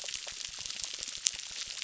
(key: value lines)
label: biophony, crackle
recorder: SoundTrap 600